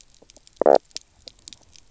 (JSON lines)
{"label": "biophony, knock croak", "recorder": "SoundTrap 300"}